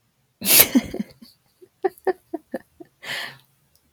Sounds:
Laughter